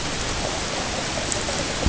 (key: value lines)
label: ambient
recorder: HydroMoth